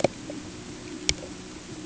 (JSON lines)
{"label": "anthrophony, boat engine", "recorder": "HydroMoth"}